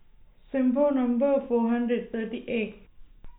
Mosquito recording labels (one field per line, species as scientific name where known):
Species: no mosquito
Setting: cup